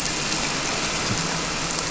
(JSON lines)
{"label": "anthrophony, boat engine", "recorder": "SoundTrap 300"}